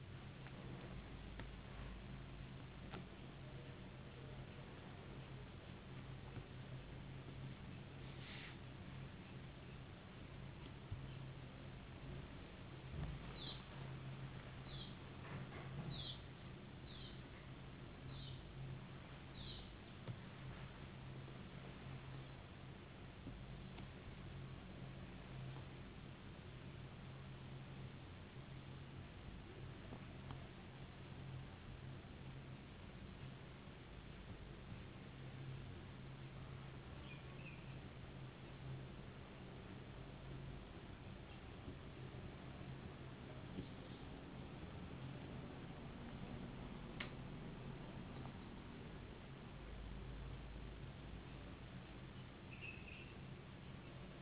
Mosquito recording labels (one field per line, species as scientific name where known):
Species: no mosquito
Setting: insect culture